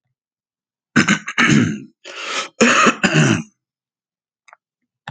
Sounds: Throat clearing